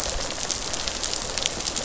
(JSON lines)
{"label": "biophony, rattle response", "recorder": "SoundTrap 500"}